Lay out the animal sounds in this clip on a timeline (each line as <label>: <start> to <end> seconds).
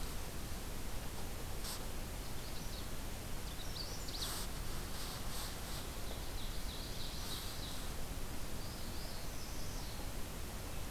Magnolia Warbler (Setophaga magnolia): 2.1 to 3.0 seconds
Magnolia Warbler (Setophaga magnolia): 3.3 to 4.3 seconds
Ovenbird (Seiurus aurocapilla): 5.8 to 8.0 seconds
Northern Parula (Setophaga americana): 8.5 to 10.1 seconds